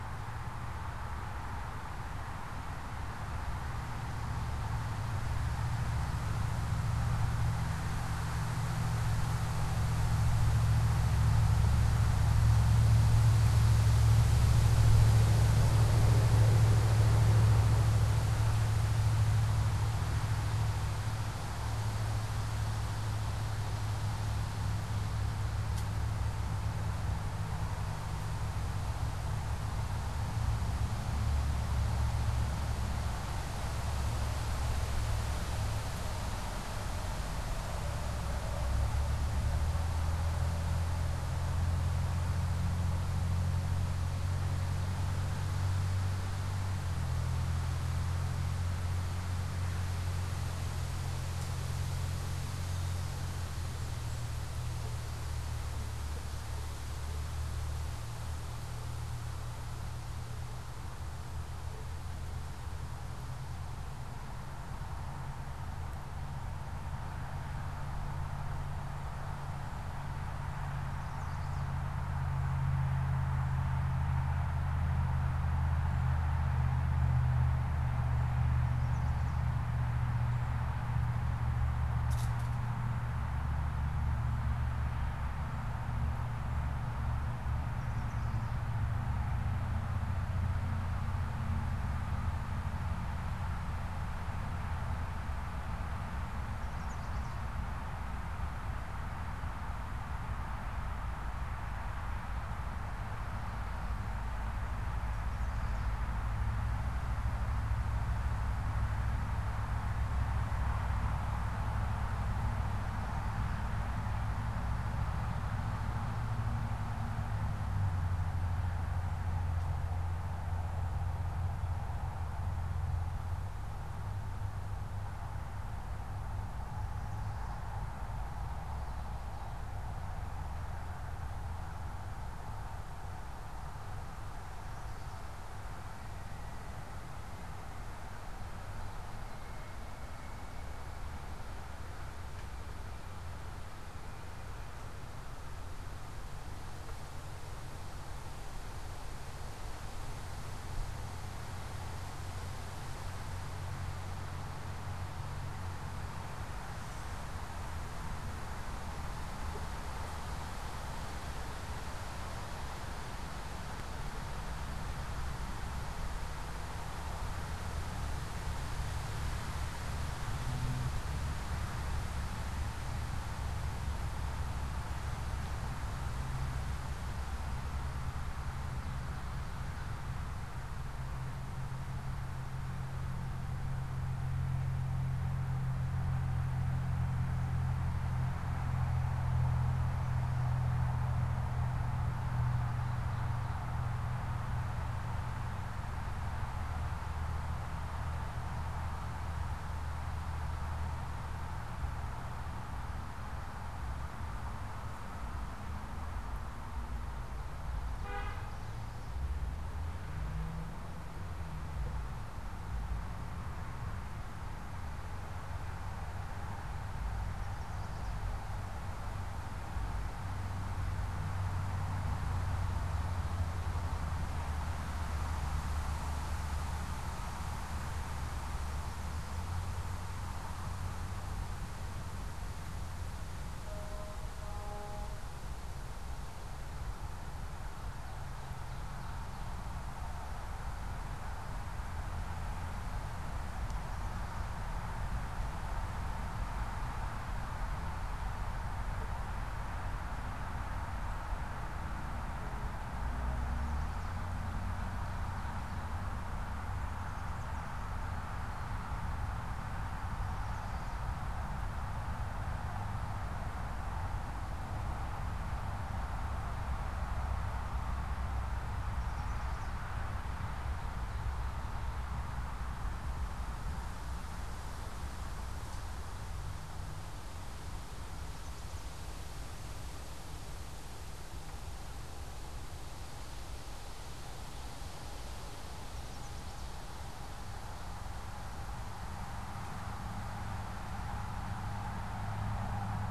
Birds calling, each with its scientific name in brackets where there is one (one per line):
Chestnut-sided Warbler (Setophaga pensylvanica)
Gray Catbird (Dumetella carolinensis)
Ovenbird (Seiurus aurocapilla)